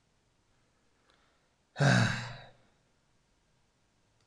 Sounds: Sigh